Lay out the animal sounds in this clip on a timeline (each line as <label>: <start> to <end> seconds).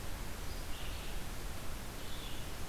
Red-eyed Vireo (Vireo olivaceus): 0.0 to 2.7 seconds